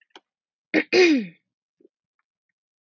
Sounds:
Throat clearing